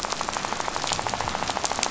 {"label": "biophony, rattle", "recorder": "SoundTrap 500"}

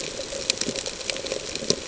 {"label": "ambient", "recorder": "HydroMoth"}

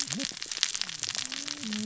{"label": "biophony, cascading saw", "recorder": "SoundTrap 600 or HydroMoth"}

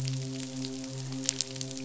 {"label": "biophony, midshipman", "recorder": "SoundTrap 500"}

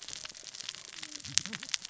{"label": "biophony, cascading saw", "recorder": "SoundTrap 600 or HydroMoth"}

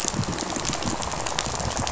{"label": "biophony, rattle", "recorder": "SoundTrap 500"}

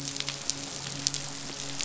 {"label": "biophony, midshipman", "recorder": "SoundTrap 500"}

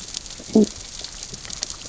{"label": "biophony, growl", "recorder": "SoundTrap 600 or HydroMoth"}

